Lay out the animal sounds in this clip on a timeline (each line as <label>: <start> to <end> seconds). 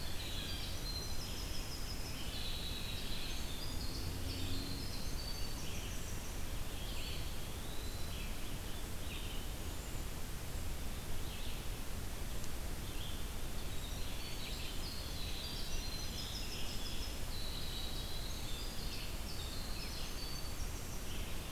Blue Jay (Cyanocitta cristata): 0.0 to 0.8 seconds
Winter Wren (Troglodytes hiemalis): 0.0 to 6.7 seconds
Red-eyed Vireo (Vireo olivaceus): 0.0 to 21.5 seconds
Eastern Wood-Pewee (Contopus virens): 6.8 to 8.4 seconds
Winter Wren (Troglodytes hiemalis): 13.5 to 21.4 seconds
Scarlet Tanager (Piranga olivacea): 15.6 to 17.2 seconds